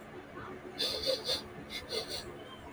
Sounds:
Sniff